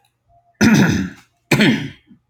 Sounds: Throat clearing